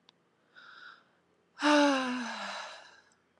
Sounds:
Sigh